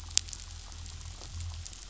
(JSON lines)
{"label": "anthrophony, boat engine", "recorder": "SoundTrap 500"}